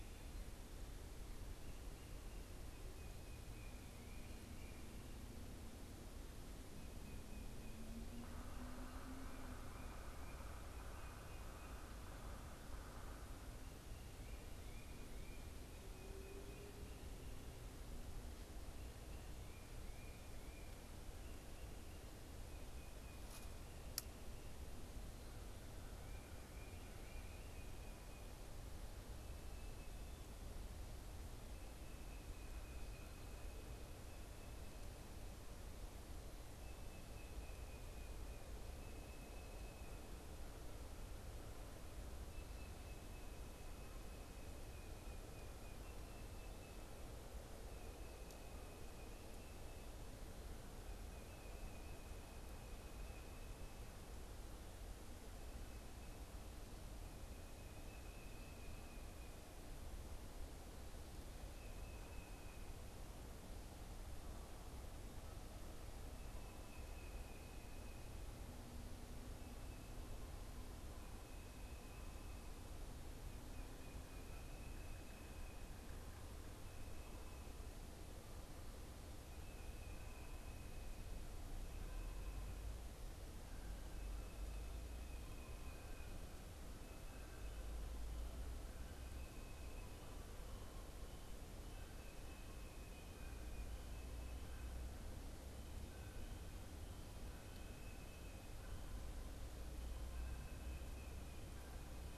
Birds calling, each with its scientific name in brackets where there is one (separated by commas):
Yellow-bellied Sapsucker (Sphyrapicus varius)